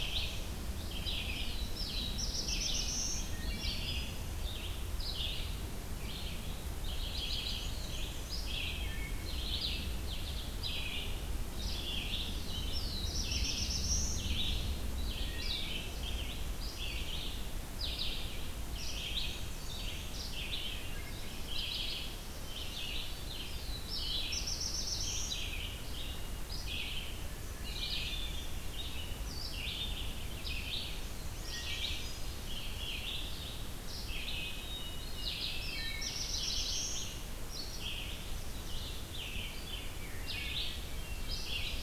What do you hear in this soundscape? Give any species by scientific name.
Vireo olivaceus, Setophaga caerulescens, Hylocichla mustelina, Mniotilta varia, Catharus guttatus